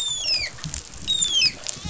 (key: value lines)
label: biophony, rattle response
recorder: SoundTrap 500

label: biophony
recorder: SoundTrap 500

label: biophony, dolphin
recorder: SoundTrap 500